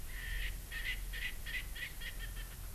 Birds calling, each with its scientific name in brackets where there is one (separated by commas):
Erckel's Francolin (Pternistis erckelii)